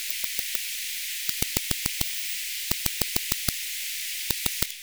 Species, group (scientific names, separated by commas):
Metaplastes ornatus, Orthoptera